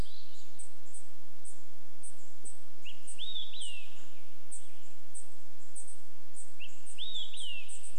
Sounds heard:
Western Tanager song, Dark-eyed Junco call, Olive-sided Flycatcher song, warbler song

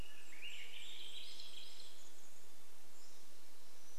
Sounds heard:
Pacific-slope Flycatcher song, Swainson's Thrush song, Golden-crowned Kinglet song

